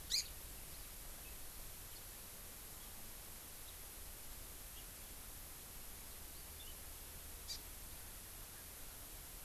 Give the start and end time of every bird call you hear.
0.0s-0.3s: Hawaii Amakihi (Chlorodrepanis virens)
7.4s-7.6s: Hawaii Amakihi (Chlorodrepanis virens)

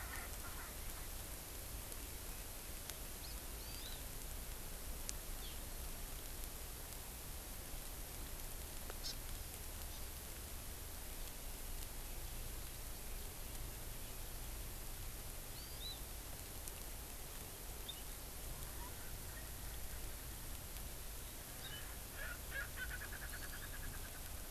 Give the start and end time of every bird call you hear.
0.0s-1.1s: Erckel's Francolin (Pternistis erckelii)
3.6s-4.0s: Hawaii Amakihi (Chlorodrepanis virens)
9.1s-9.2s: Hawaii Amakihi (Chlorodrepanis virens)
9.9s-10.0s: Hawaii Amakihi (Chlorodrepanis virens)
15.6s-16.0s: Hawaii Amakihi (Chlorodrepanis virens)
18.5s-20.6s: Erckel's Francolin (Pternistis erckelii)
21.6s-24.5s: Erckel's Francolin (Pternistis erckelii)
23.3s-23.8s: Hawaii Amakihi (Chlorodrepanis virens)

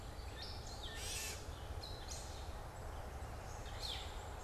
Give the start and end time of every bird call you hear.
0.0s-4.4s: Gray Catbird (Dumetella carolinensis)
3.6s-4.4s: Black-capped Chickadee (Poecile atricapillus)

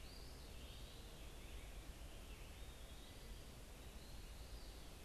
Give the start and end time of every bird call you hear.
0.0s-5.0s: Eastern Wood-Pewee (Contopus virens)
0.2s-5.0s: American Robin (Turdus migratorius)

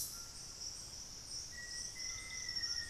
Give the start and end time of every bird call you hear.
0.0s-2.9s: White-throated Toucan (Ramphastos tucanus)
1.4s-2.9s: Black-faced Antthrush (Formicarius analis)

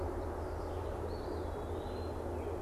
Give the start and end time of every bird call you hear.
0.9s-2.4s: Eastern Wood-Pewee (Contopus virens)

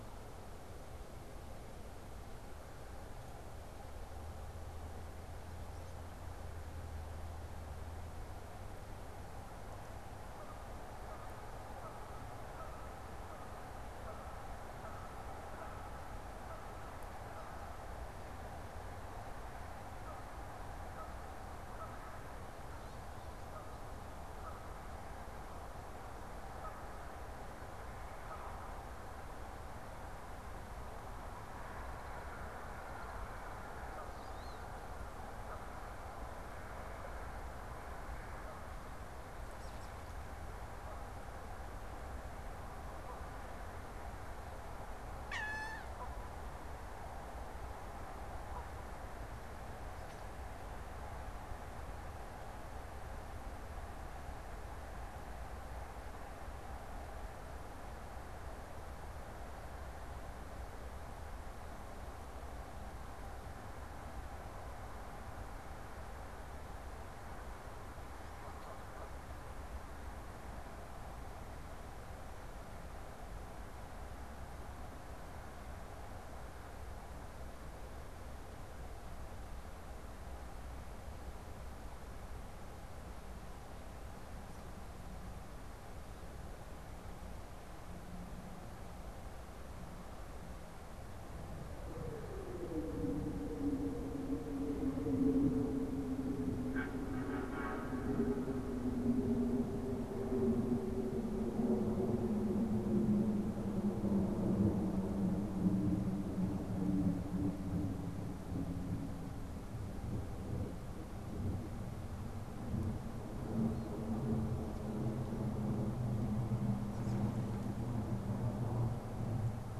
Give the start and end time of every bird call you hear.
9.9s-48.9s: Canada Goose (Branta canadensis)
34.1s-34.8s: Wood Duck (Aix sponsa)
39.4s-40.4s: Wood Duck (Aix sponsa)
45.2s-46.2s: Wood Duck (Aix sponsa)
116.7s-117.4s: Wood Duck (Aix sponsa)

